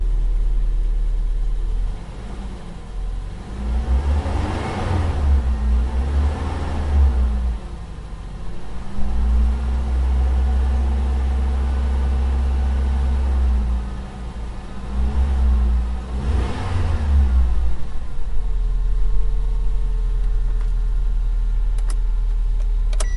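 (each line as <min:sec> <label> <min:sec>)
0:00.0 An idle car engine revving. 0:02.7
0:02.6 An accelerating car engine is revving. 0:07.5
0:08.8 A car engine is revving. 0:15.9
0:15.9 An accelerating car engine is revving. 0:18.2
0:18.2 An idle car engine revving. 0:23.2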